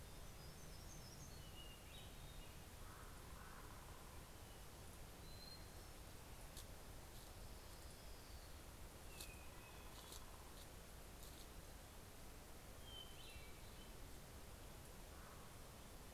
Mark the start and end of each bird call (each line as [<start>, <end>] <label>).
[0.00, 1.79] Hermit Warbler (Setophaga occidentalis)
[0.00, 6.09] Hermit Thrush (Catharus guttatus)
[2.19, 4.79] Common Raven (Corvus corax)
[6.89, 8.99] Orange-crowned Warbler (Leiothlypis celata)
[8.39, 14.49] Hermit Thrush (Catharus guttatus)
[14.79, 15.99] Common Raven (Corvus corax)